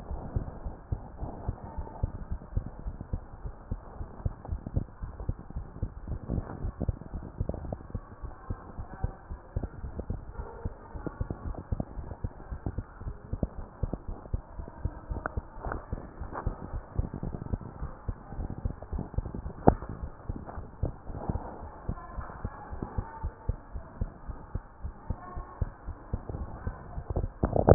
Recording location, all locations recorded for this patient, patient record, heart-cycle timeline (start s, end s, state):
tricuspid valve (TV)
aortic valve (AV)+pulmonary valve (PV)+tricuspid valve (TV)+mitral valve (MV)
#Age: Child
#Sex: Female
#Height: 95.0 cm
#Weight: 17.5 kg
#Pregnancy status: False
#Murmur: Absent
#Murmur locations: nan
#Most audible location: nan
#Systolic murmur timing: nan
#Systolic murmur shape: nan
#Systolic murmur grading: nan
#Systolic murmur pitch: nan
#Systolic murmur quality: nan
#Diastolic murmur timing: nan
#Diastolic murmur shape: nan
#Diastolic murmur grading: nan
#Diastolic murmur pitch: nan
#Diastolic murmur quality: nan
#Outcome: Normal
#Campaign: 2015 screening campaign
0.00	19.80	unannotated
19.80	19.98	diastole
19.98	20.10	S1
20.10	20.28	systole
20.28	20.42	S2
20.42	20.58	diastole
20.58	20.68	S1
20.68	20.80	systole
20.80	20.94	S2
20.94	21.08	diastole
21.08	21.20	S1
21.20	21.28	systole
21.28	21.42	S2
21.42	21.58	diastole
21.58	21.70	S1
21.70	21.86	systole
21.86	22.00	S2
22.00	22.16	diastole
22.16	22.26	S1
22.26	22.42	systole
22.42	22.52	S2
22.52	22.68	diastole
22.68	22.80	S1
22.80	22.96	systole
22.96	23.06	S2
23.06	23.22	diastole
23.22	23.34	S1
23.34	23.46	systole
23.46	23.60	S2
23.60	23.74	diastole
23.74	23.84	S1
23.84	24.00	systole
24.00	24.12	S2
24.12	24.28	diastole
24.28	24.40	S1
24.40	24.54	systole
24.54	24.64	S2
24.64	24.82	diastole
24.82	24.96	S1
24.96	25.08	systole
25.08	25.20	S2
25.20	25.36	diastole
25.36	25.46	S1
25.46	25.60	systole
25.60	25.74	S2
25.74	25.88	diastole
25.88	25.98	S1
25.98	26.14	systole
26.14	26.24	S2
26.24	26.36	diastole
26.36	26.50	S1
26.50	26.62	systole
26.62	26.74	S2
26.74	26.85	diastole
26.85	27.74	unannotated